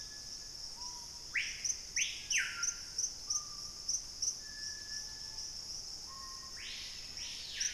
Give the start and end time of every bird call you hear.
0.0s-7.7s: Screaming Piha (Lipaugus vociferans)
6.0s-7.7s: Black-faced Antthrush (Formicarius analis)

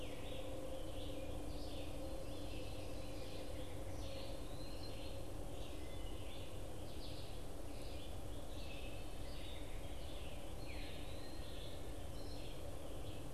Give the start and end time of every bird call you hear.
0.0s-13.3s: Red-eyed Vireo (Vireo olivaceus)
1.6s-3.7s: Ovenbird (Seiurus aurocapilla)
3.9s-5.2s: Eastern Wood-Pewee (Contopus virens)
5.3s-9.9s: Wood Thrush (Hylocichla mustelina)
10.4s-11.6s: Eastern Wood-Pewee (Contopus virens)

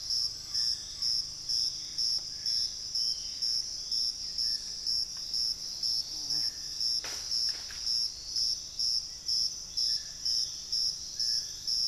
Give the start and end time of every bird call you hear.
0.0s-1.4s: unidentified bird
0.0s-11.9s: Dusky-throated Antshrike (Thamnomanes ardesiacus)
0.2s-3.7s: Gray Antbird (Cercomacra cinerascens)
8.8s-10.8s: Black-faced Antthrush (Formicarius analis)

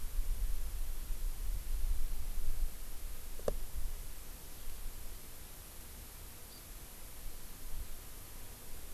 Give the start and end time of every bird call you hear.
6.5s-6.6s: Hawaii Amakihi (Chlorodrepanis virens)

